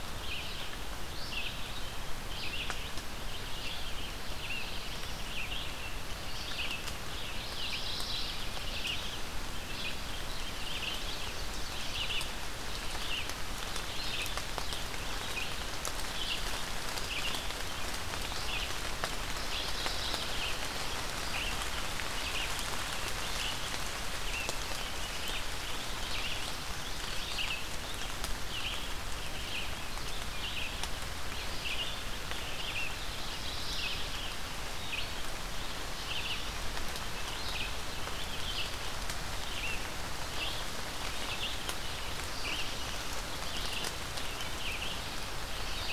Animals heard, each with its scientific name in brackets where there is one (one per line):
Red-eyed Vireo (Vireo olivaceus)
Black-throated Blue Warbler (Setophaga caerulescens)
Mourning Warbler (Geothlypis philadelphia)